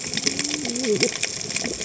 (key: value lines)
label: biophony, cascading saw
recorder: HydroMoth